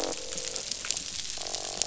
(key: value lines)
label: biophony, croak
recorder: SoundTrap 500